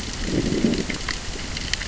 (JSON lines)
{"label": "biophony, growl", "recorder": "SoundTrap 600 or HydroMoth"}